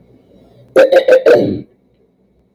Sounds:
Throat clearing